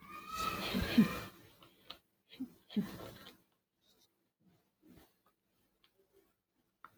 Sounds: Laughter